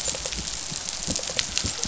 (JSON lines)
{"label": "biophony, rattle response", "recorder": "SoundTrap 500"}